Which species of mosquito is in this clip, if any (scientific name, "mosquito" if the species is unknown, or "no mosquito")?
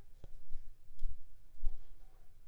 Anopheles squamosus